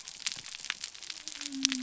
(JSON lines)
{"label": "biophony", "recorder": "SoundTrap 300"}